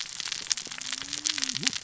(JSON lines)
{"label": "biophony, cascading saw", "recorder": "SoundTrap 600 or HydroMoth"}